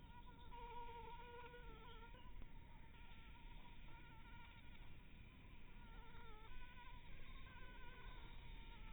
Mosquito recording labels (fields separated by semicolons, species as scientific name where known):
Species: Anopheles maculatus; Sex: female; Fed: unfed; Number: one; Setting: cup